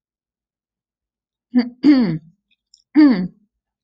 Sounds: Throat clearing